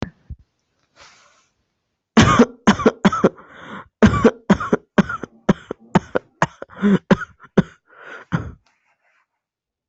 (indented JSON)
{
  "expert_labels": [
    {
      "quality": "good",
      "cough_type": "dry",
      "dyspnea": false,
      "wheezing": false,
      "stridor": false,
      "choking": false,
      "congestion": false,
      "nothing": true,
      "diagnosis": "obstructive lung disease",
      "severity": "severe"
    }
  ]
}